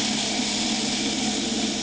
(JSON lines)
{"label": "anthrophony, boat engine", "recorder": "HydroMoth"}